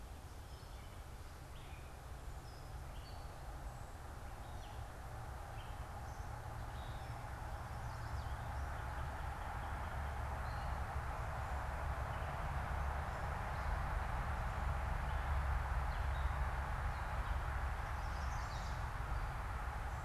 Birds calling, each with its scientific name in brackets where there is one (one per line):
Chestnut-sided Warbler (Setophaga pensylvanica)
Gray Catbird (Dumetella carolinensis)